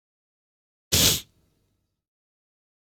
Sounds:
Sniff